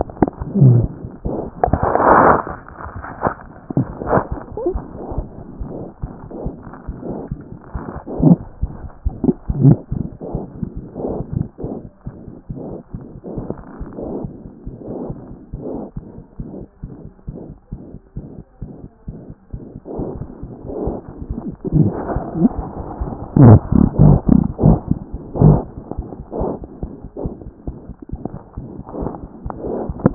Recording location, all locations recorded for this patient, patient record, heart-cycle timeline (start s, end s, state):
aortic valve (AV)
aortic valve (AV)+mitral valve (MV)
#Age: Infant
#Sex: Female
#Height: 55.0 cm
#Weight: 5.4 kg
#Pregnancy status: False
#Murmur: Present
#Murmur locations: aortic valve (AV)+mitral valve (MV)
#Most audible location: mitral valve (MV)
#Systolic murmur timing: Holosystolic
#Systolic murmur shape: Plateau
#Systolic murmur grading: I/VI
#Systolic murmur pitch: Medium
#Systolic murmur quality: Blowing
#Diastolic murmur timing: nan
#Diastolic murmur shape: nan
#Diastolic murmur grading: nan
#Diastolic murmur pitch: nan
#Diastolic murmur quality: nan
#Outcome: Abnormal
#Campaign: 2014 screening campaign
0.00	17.16	unannotated
17.16	17.26	diastole
17.26	17.31	S1
17.31	17.48	systole
17.48	17.53	S2
17.53	17.70	diastole
17.70	17.78	S1
17.78	17.92	systole
17.92	17.99	S2
17.99	18.16	diastole
18.16	18.22	S1
18.22	18.40	systole
18.40	18.43	S2
18.43	18.61	diastole
18.61	18.66	S1
18.66	18.84	systole
18.84	18.88	S2
18.88	19.07	diastole
19.07	19.14	S1
19.14	19.30	systole
19.30	19.40	S2
19.40	19.53	diastole
19.53	19.59	S1
19.59	19.74	systole
19.74	19.79	S2
19.79	19.98	diastole
19.98	20.02	S1
20.02	20.20	systole
20.20	20.26	S2
20.26	20.41	diastole
20.41	30.14	unannotated